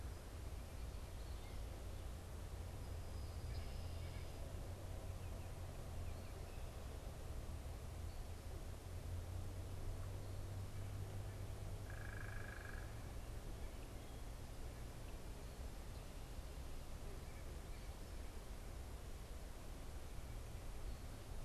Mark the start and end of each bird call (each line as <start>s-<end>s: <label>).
11.7s-13.1s: unidentified bird